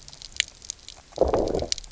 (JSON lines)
{"label": "biophony, low growl", "recorder": "SoundTrap 300"}